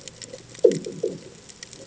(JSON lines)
{"label": "anthrophony, bomb", "recorder": "HydroMoth"}